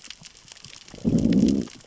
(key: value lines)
label: biophony, growl
recorder: SoundTrap 600 or HydroMoth